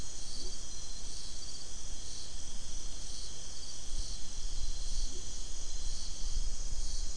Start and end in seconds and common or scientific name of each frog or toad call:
0.3	0.6	Leptodactylus latrans
4.9	5.3	Leptodactylus latrans